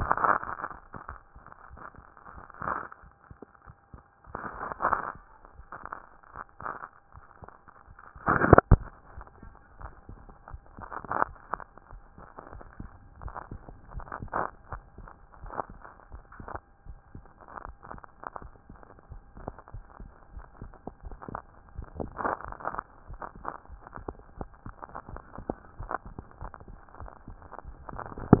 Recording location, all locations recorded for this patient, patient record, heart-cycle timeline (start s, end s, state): tricuspid valve (TV)
aortic valve (AV)+pulmonary valve (PV)+tricuspid valve (TV)+mitral valve (MV)
#Age: Child
#Sex: Male
#Height: 126.0 cm
#Weight: 20.6 kg
#Pregnancy status: False
#Murmur: Unknown
#Murmur locations: nan
#Most audible location: nan
#Systolic murmur timing: nan
#Systolic murmur shape: nan
#Systolic murmur grading: nan
#Systolic murmur pitch: nan
#Systolic murmur quality: nan
#Diastolic murmur timing: nan
#Diastolic murmur shape: nan
#Diastolic murmur grading: nan
#Diastolic murmur pitch: nan
#Diastolic murmur quality: nan
#Outcome: Normal
#Campaign: 2014 screening campaign
0.00	9.01	unannotated
9.01	9.16	diastole
9.16	9.28	S1
9.28	9.44	systole
9.44	9.54	S2
9.54	9.82	diastole
9.82	9.92	S1
9.92	10.08	systole
10.08	10.18	S2
10.18	10.52	diastole
10.52	10.62	S1
10.62	10.78	systole
10.78	10.88	S2
10.88	11.22	diastole
11.22	11.36	S1
11.36	11.52	systole
11.52	11.62	S2
11.62	11.92	diastole
11.92	12.02	S1
12.02	12.18	systole
12.18	12.26	S2
12.26	12.52	diastole
12.52	12.64	S1
12.64	12.80	systole
12.80	12.90	S2
12.90	13.22	diastole
13.22	13.34	S1
13.34	13.50	systole
13.50	13.60	S2
13.60	13.94	diastole
13.94	14.06	S1
14.06	14.22	systole
14.22	14.30	S2
14.30	14.72	diastole
14.72	14.82	S1
14.82	14.98	systole
14.98	15.08	S2
15.08	15.42	diastole
15.42	15.54	S1
15.54	15.70	systole
15.70	15.80	S2
15.80	16.12	diastole
16.12	16.24	S1
16.24	16.40	systole
16.40	16.50	S2
16.50	16.86	diastole
16.86	16.98	S1
16.98	17.14	systole
17.14	17.24	S2
17.24	17.64	diastole
17.64	17.76	S1
17.76	17.92	systole
17.92	18.02	S2
18.02	18.42	diastole
18.42	18.52	S1
18.52	18.70	systole
18.70	18.80	S2
18.80	19.10	diastole
19.10	19.22	S1
19.22	19.40	systole
19.40	19.52	S2
19.52	19.74	diastole
19.74	19.86	S1
19.86	20.00	systole
20.00	20.12	S2
20.12	20.34	diastole
20.34	20.46	S1
20.46	20.60	systole
20.60	20.70	S2
20.70	21.04	diastole
21.04	21.18	S1
21.18	21.32	systole
21.32	21.42	S2
21.42	21.78	diastole
21.78	21.88	S1
21.88	21.98	systole
21.98	22.10	S2
22.10	22.46	diastole
22.46	28.40	unannotated